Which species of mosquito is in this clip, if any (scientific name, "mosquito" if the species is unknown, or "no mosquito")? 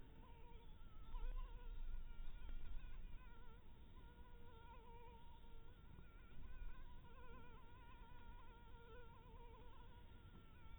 Anopheles harrisoni